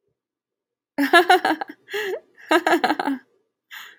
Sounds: Laughter